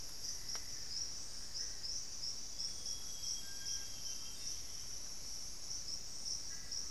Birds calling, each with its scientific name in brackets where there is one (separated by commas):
Amazonian Grosbeak (Cyanoloxia rothschildii), Amazonian Barred-Woodcreeper (Dendrocolaptes certhia), Bartlett's Tinamou (Crypturellus bartletti)